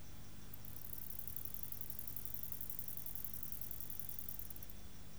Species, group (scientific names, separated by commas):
Conocephalus fuscus, Orthoptera